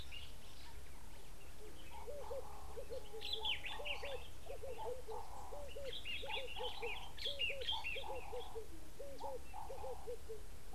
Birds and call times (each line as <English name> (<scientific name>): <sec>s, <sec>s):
Red-eyed Dove (Streptopelia semitorquata): 4.9s
Common Bulbul (Pycnonotus barbatus): 7.3s
Ring-necked Dove (Streptopelia capicola): 8.3s